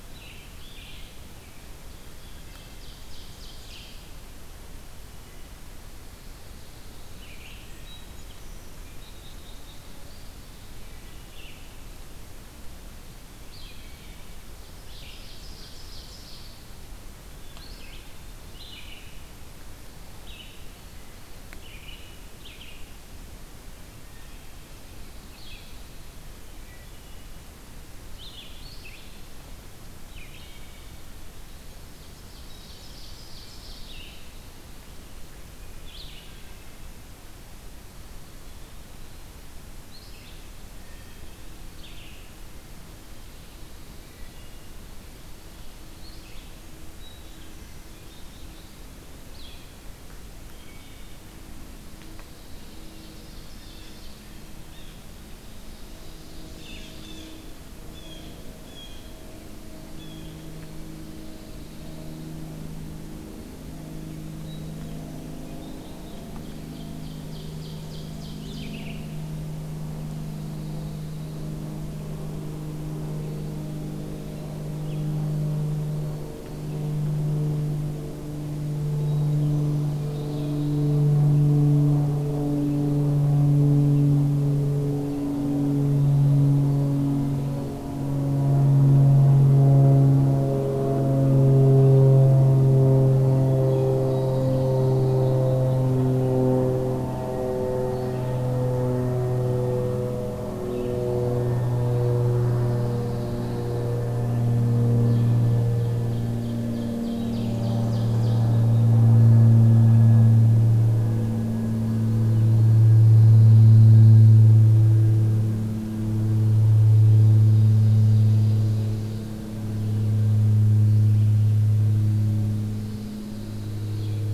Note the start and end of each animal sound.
0.0s-55.4s: Red-eyed Vireo (Vireo olivaceus)
2.2s-2.9s: Hermit Thrush (Catharus guttatus)
2.2s-4.3s: Ovenbird (Seiurus aurocapilla)
7.7s-8.3s: Hermit Thrush (Catharus guttatus)
8.9s-10.5s: Black-capped Chickadee (Poecile atricapillus)
14.9s-16.7s: Ovenbird (Seiurus aurocapilla)
26.5s-27.0s: Hermit Thrush (Catharus guttatus)
32.2s-34.3s: Ovenbird (Seiurus aurocapilla)
44.0s-44.8s: Hermit Thrush (Catharus guttatus)
46.8s-47.7s: Hermit Thrush (Catharus guttatus)
50.5s-51.3s: Hermit Thrush (Catharus guttatus)
55.0s-57.4s: Ovenbird (Seiurus aurocapilla)
56.9s-60.4s: Blue Jay (Cyanocitta cristata)
60.9s-62.4s: Pine Warbler (Setophaga pinus)
64.3s-64.8s: Hermit Thrush (Catharus guttatus)
65.7s-68.7s: Ovenbird (Seiurus aurocapilla)
68.3s-69.3s: Red-eyed Vireo (Vireo olivaceus)
70.1s-71.7s: Pine Warbler (Setophaga pinus)
73.2s-74.6s: Eastern Wood-Pewee (Contopus virens)
78.9s-79.5s: Hermit Thrush (Catharus guttatus)
79.6s-81.1s: Pine Warbler (Setophaga pinus)
85.1s-87.9s: Eastern Wood-Pewee (Contopus virens)
94.0s-95.5s: Pine Warbler (Setophaga pinus)
94.0s-94.6s: Hermit Thrush (Catharus guttatus)
100.9s-102.3s: Eastern Wood-Pewee (Contopus virens)
102.4s-104.1s: Pine Warbler (Setophaga pinus)
105.5s-108.7s: Ovenbird (Seiurus aurocapilla)
109.1s-110.4s: Eastern Wood-Pewee (Contopus virens)
112.7s-114.5s: Pine Warbler (Setophaga pinus)
117.3s-119.5s: Ovenbird (Seiurus aurocapilla)
122.6s-124.3s: Pine Warbler (Setophaga pinus)

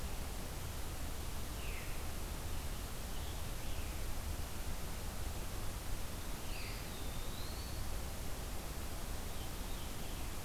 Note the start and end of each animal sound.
1.5s-1.8s: Veery (Catharus fuscescens)
6.3s-7.8s: Eastern Wood-Pewee (Contopus virens)
6.4s-6.8s: Veery (Catharus fuscescens)
9.2s-10.3s: Veery (Catharus fuscescens)

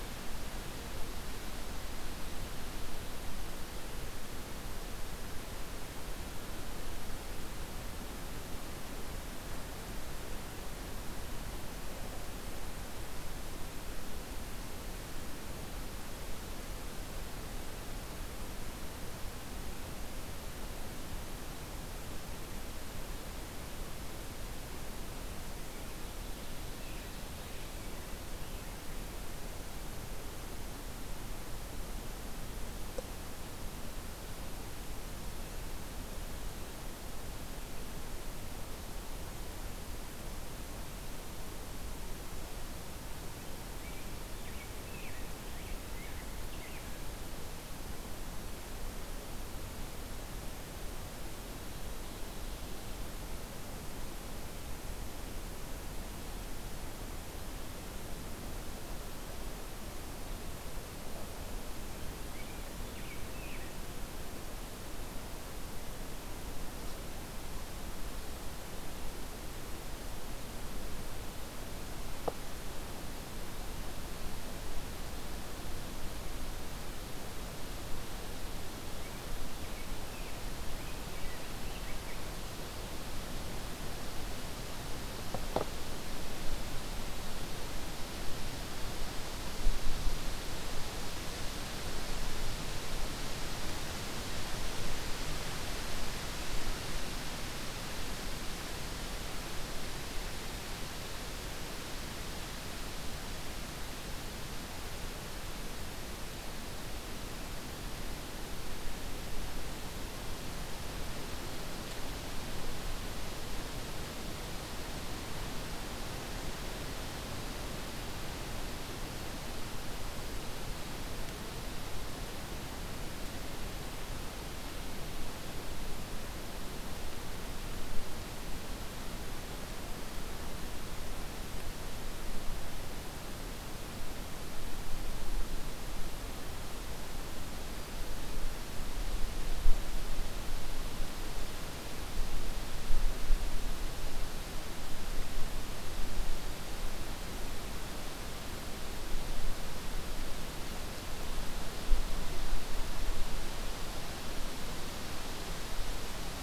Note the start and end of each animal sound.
44.3s-47.1s: Rose-breasted Grosbeak (Pheucticus ludovicianus)
62.3s-63.8s: Rose-breasted Grosbeak (Pheucticus ludovicianus)
79.4s-82.3s: Rose-breasted Grosbeak (Pheucticus ludovicianus)

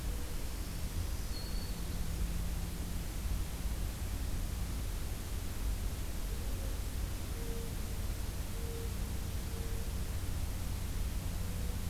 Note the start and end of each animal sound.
0.1s-2.1s: Black-throated Green Warbler (Setophaga virens)

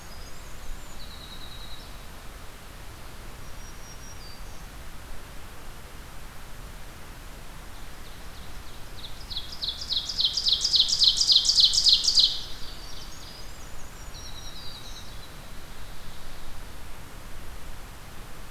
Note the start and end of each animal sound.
0.0s-2.1s: Winter Wren (Troglodytes hiemalis)
3.2s-4.9s: Black-throated Green Warbler (Setophaga virens)
7.6s-12.6s: Ovenbird (Seiurus aurocapilla)
12.6s-17.0s: Winter Wren (Troglodytes hiemalis)

